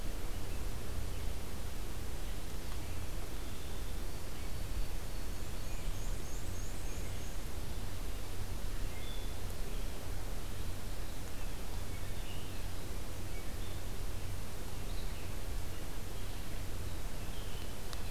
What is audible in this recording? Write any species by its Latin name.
Zonotrichia albicollis, Vireo olivaceus, Mniotilta varia, Cyanocitta cristata